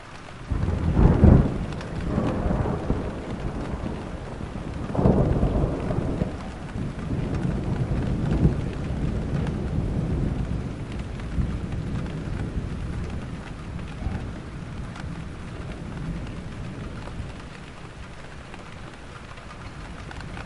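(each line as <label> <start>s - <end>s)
Faint continuous rain. 0.0s - 20.5s
Lightning strikes repeatedly during a rainstorm in a uniform pattern. 0.0s - 20.5s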